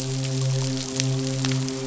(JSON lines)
{"label": "biophony, midshipman", "recorder": "SoundTrap 500"}